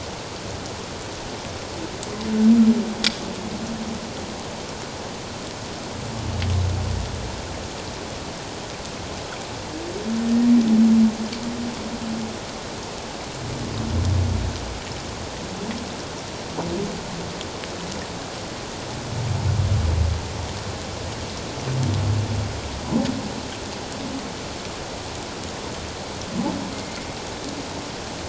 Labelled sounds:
26.7	27.0	humpback whale, 2.1 to 2.2 kHz

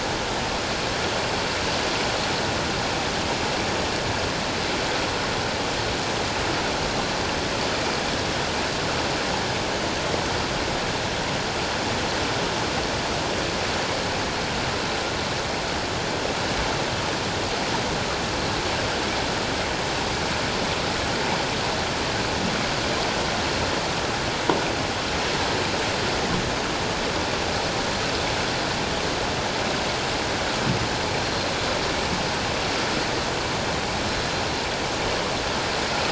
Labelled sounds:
31.2	31.5	Pacific white-sided dolphin, 4.1 to 4.3 kHz

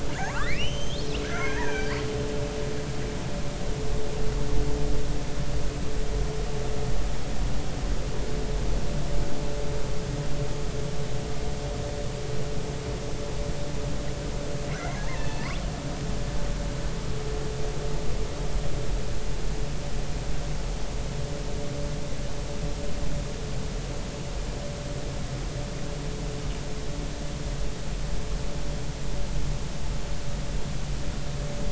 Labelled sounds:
0.1	1.1	killer whale, northern resident, R clan, call N32i, 0.80 to 6.6 kHz
1.2	2.1	killer whale, northern resident, R clan, call N33, 0.80 to 6.3 kHz
14.7	15.5	killer whale, northern resident, R clan, call N33, 1.7 to 6.2 kHz

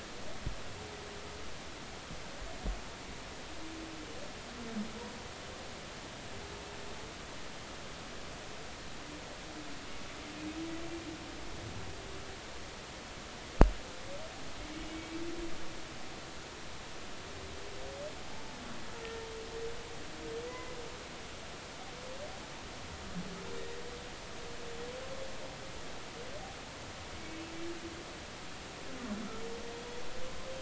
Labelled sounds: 14.9	15.2	humpback whale, 2.2 to 2.3 kHz
20.5	20.8	humpback whale, 0.96 to 2.1 kHz
27.3	27.5	humpback whale, 2.6 to 2.7 kHz

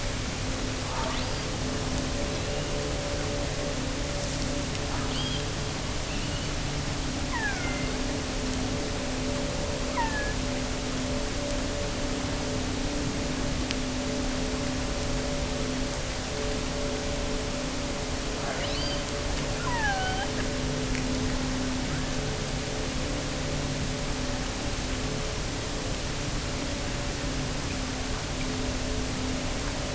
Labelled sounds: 0.8	1.6	killer whale, offshore, 0.80 to 5.0 kHz
4.8	5.5	killer whale, offshore, 0.82 to 5.1 kHz
7.1	8.0	killer whale, offshore, 0.70 to 3.1 kHz
9.8	10.5	killer whale, offshore, 0.84 to 3.1 kHz
18.4	19.1	killer whale, offshore, 0.66 to 5.9 kHz
19.6	20.4	killer whale, offshore, 0.66 to 3.6 kHz
21.8	22.5	killer whale, offshore, 1.1 to 1.9 kHz

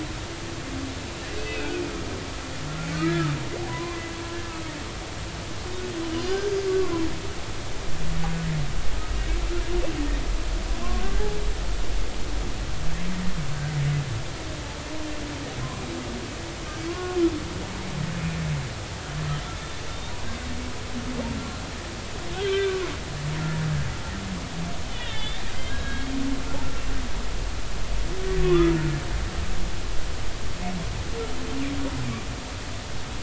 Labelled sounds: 1.4	1.8	humpback whale, 1.4 to 2.7 kHz
2.9	3.3	humpback whale, 1.2 to 1.4 kHz
3.7	4.1	humpback whale, 0.93 to 2.1 kHz
6.2	7.0	humpback whale, 0.96 to 5.0 kHz
16.9	17.2	humpback whale, 0.99 to 1.2 kHz
21.4	21.6	humpback whale, 1.3 to 1.4 kHz
22.4	22.8	humpback whale, 1.5 to 2.4 kHz
24.9	26.2	humpback whale, 1.4 to 3.9 kHz
28.4	28.7	humpback whale, 1.0 to 1.4 kHz

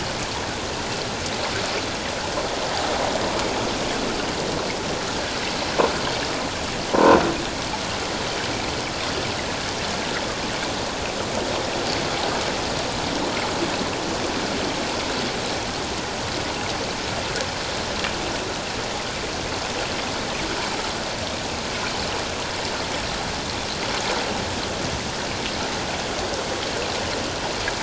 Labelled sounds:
6.9	7.2	croaking sound likely from a nearby submerged object, 0.88 to 1.1 kHz

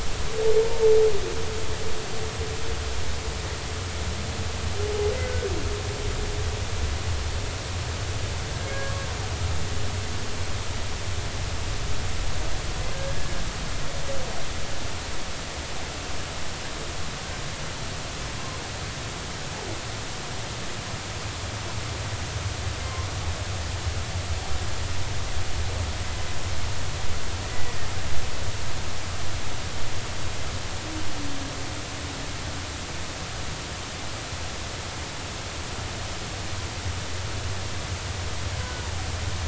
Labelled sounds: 0.6	0.9	humpback whale, 0.83 to 1.0 kHz
5.2	5.5	humpback whale, 1.4 to 1.6 kHz
8.7	9.0	humpback whale, 1.1 to 1.3 kHz
27.5	27.8	humpback whale, 1.9 to 2.0 kHz
38.6	38.9	humpback whale, 1.4 to 1.6 kHz

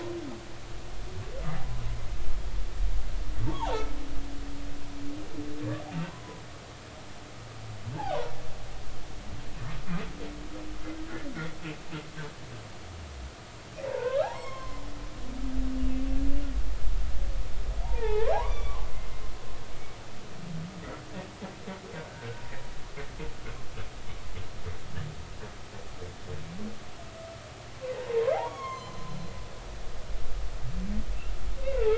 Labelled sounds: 3.5	3.9	humpback whale, 1.2 to 3.6 kHz
6.1	6.4	humpback whale, 0.93 to 1.1 kHz
7.9	8.2	humpback whale, 1.4 to 1.8 kHz
13.9	15.4	humpback whale, 0.80 to 5.5 kHz
17.8	18.9	humpback whale, 0.80 to 3.6 kHz
23.0	23.3	humpback whale, 1.4 to 1.7 kHz
28.3	29.1	humpback whale, 0.80 to 7.4 kHz
31.7	31.9	humpback whale, 1.2 to 1.5 kHz

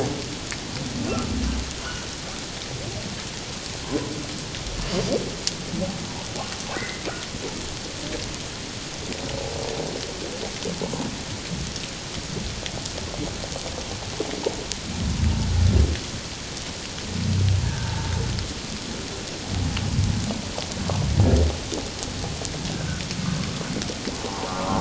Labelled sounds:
6.7	7.1	humpback whale, 1.4 to 2.1 kHz
17.6	18.1	humpback whale, 0.78 to 1.8 kHz
22.8	23.0	humpback whale, 1.4 to 1.6 kHz
24.5	24.8	humpback whale, 0.94 to 1.4 kHz

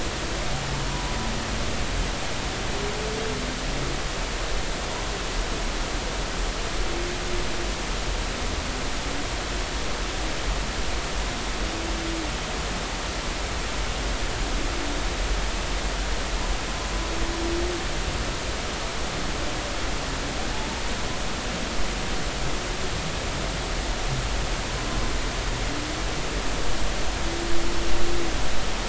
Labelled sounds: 0.9	1.2	humpback whale, 0.90 to 1.0 kHz

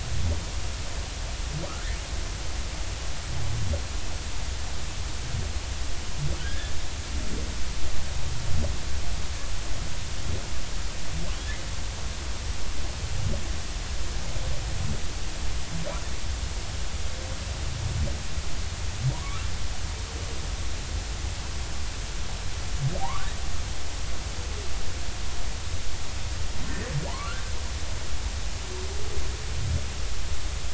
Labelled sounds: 1.7	1.9	humpback whale, 1.1 to 1.5 kHz
6.4	6.7	humpback whale, 1.4 to 1.8 kHz
19.1	19.4	humpback whale, 0.90 to 1.2 kHz
23.0	23.3	humpback whale, 0.80 to 1.6 kHz
27.1	27.3	humpback whale, 0.83 to 1.2 kHz

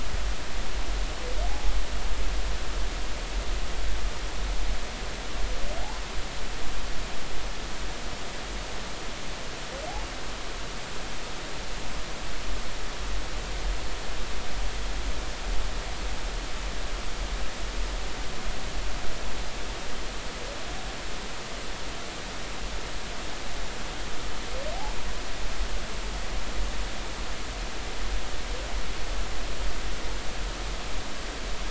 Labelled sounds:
1.5	1.7	humpback whale, 0.80 to 0.90 kHz

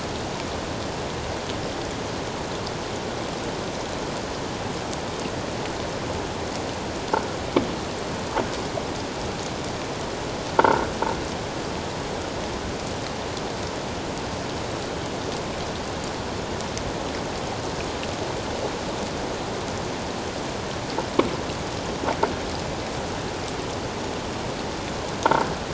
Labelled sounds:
10.6	10.9	croaking sound likely from a nearby submerged object, 1.3 to 1.6 kHz

